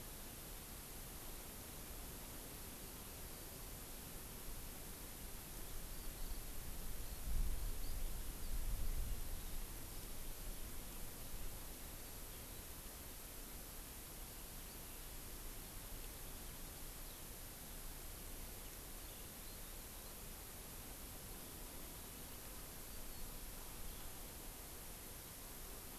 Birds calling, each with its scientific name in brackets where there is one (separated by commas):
Eurasian Skylark (Alauda arvensis)